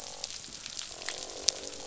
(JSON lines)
{"label": "biophony, croak", "recorder": "SoundTrap 500"}